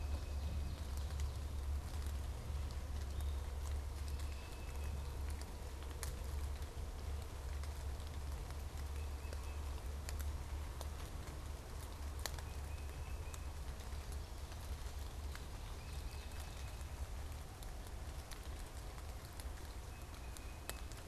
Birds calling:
unidentified bird, Tufted Titmouse (Baeolophus bicolor)

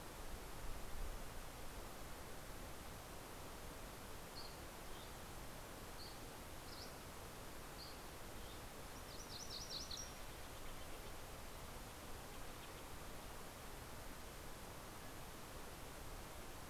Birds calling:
Steller's Jay (Cyanocitta stelleri), Dusky Flycatcher (Empidonax oberholseri), MacGillivray's Warbler (Geothlypis tolmiei)

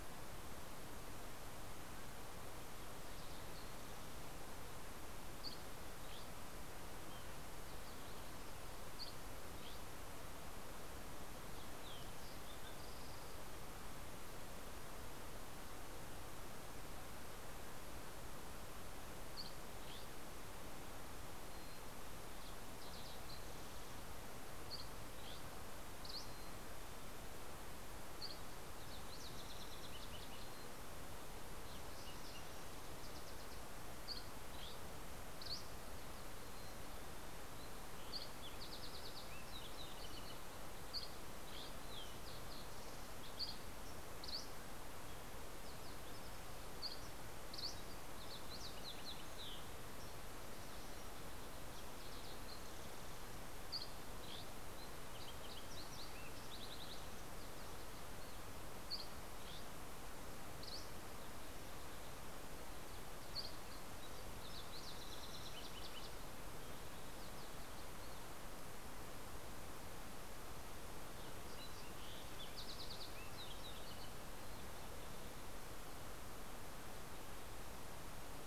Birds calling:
Mountain Chickadee (Poecile gambeli), Mountain Quail (Oreortyx pictus), Dusky Flycatcher (Empidonax oberholseri), Fox Sparrow (Passerella iliaca)

